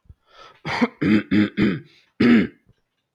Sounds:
Throat clearing